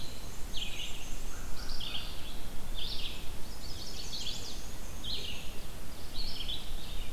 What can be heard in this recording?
Black-and-white Warbler, Red-eyed Vireo, American Crow, Chestnut-sided Warbler